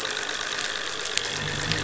{"label": "anthrophony, boat engine", "recorder": "SoundTrap 500"}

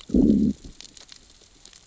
{"label": "biophony, growl", "recorder": "SoundTrap 600 or HydroMoth"}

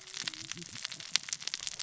{"label": "biophony, cascading saw", "recorder": "SoundTrap 600 or HydroMoth"}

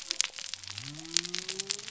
{"label": "biophony", "recorder": "SoundTrap 300"}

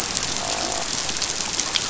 {"label": "biophony, croak", "recorder": "SoundTrap 500"}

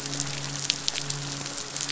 {"label": "biophony, midshipman", "recorder": "SoundTrap 500"}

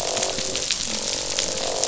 {"label": "biophony, croak", "recorder": "SoundTrap 500"}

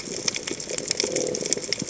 {"label": "biophony", "recorder": "HydroMoth"}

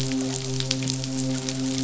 {"label": "biophony, midshipman", "recorder": "SoundTrap 500"}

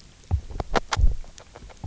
{"label": "biophony, grazing", "recorder": "SoundTrap 300"}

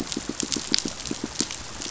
{"label": "biophony, pulse", "recorder": "SoundTrap 500"}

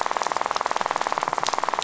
{"label": "biophony, rattle", "recorder": "SoundTrap 500"}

